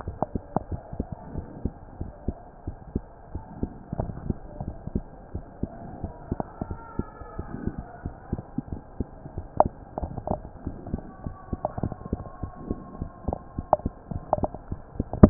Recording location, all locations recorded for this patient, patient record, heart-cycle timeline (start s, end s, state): mitral valve (MV)
aortic valve (AV)+pulmonary valve (PV)+tricuspid valve (TV)+mitral valve (MV)
#Age: Child
#Sex: Male
#Height: 133.0 cm
#Weight: 26.4 kg
#Pregnancy status: False
#Murmur: Absent
#Murmur locations: nan
#Most audible location: nan
#Systolic murmur timing: nan
#Systolic murmur shape: nan
#Systolic murmur grading: nan
#Systolic murmur pitch: nan
#Systolic murmur quality: nan
#Diastolic murmur timing: nan
#Diastolic murmur shape: nan
#Diastolic murmur grading: nan
#Diastolic murmur pitch: nan
#Diastolic murmur quality: nan
#Outcome: Abnormal
#Campaign: 2015 screening campaign
0.00	0.68	unannotated
0.68	0.80	S1
0.80	0.94	systole
0.94	1.06	S2
1.06	1.36	diastole
1.36	1.46	S1
1.46	1.64	systole
1.64	1.74	S2
1.74	2.00	diastole
2.00	2.12	S1
2.12	2.28	systole
2.28	2.36	S2
2.36	2.65	diastole
2.65	2.75	S1
2.75	2.94	systole
2.94	3.04	S2
3.04	3.32	diastole
3.32	3.42	S1
3.42	3.60	systole
3.60	3.72	S2
3.72	3.98	diastole
3.98	4.12	S1
4.12	4.26	systole
4.26	4.38	S2
4.38	4.66	diastole
4.66	4.76	S1
4.76	4.94	systole
4.94	5.04	S2
5.04	5.31	diastole
5.31	5.44	S1
5.44	5.60	systole
5.60	5.70	S2
5.70	5.99	diastole
5.99	6.12	S1
6.12	6.28	systole
6.28	6.40	S2
6.40	6.65	diastole
6.65	6.78	S1
6.78	6.98	systole
6.98	7.06	S2
7.06	7.36	diastole
7.36	7.48	S1
7.48	7.63	systole
7.63	7.74	S2
7.74	8.01	diastole
8.01	8.16	S1
8.16	8.29	systole
8.29	8.42	S2
8.42	8.69	diastole
8.69	8.80	S1
8.80	8.98	systole
8.98	9.08	S2
9.08	9.33	diastole
9.33	9.46	S1
9.46	15.30	unannotated